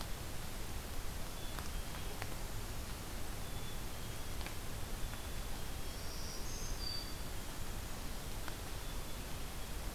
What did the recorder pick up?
Black-capped Chickadee, Black-throated Green Warbler